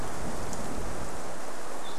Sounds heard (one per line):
Spotted Towhee song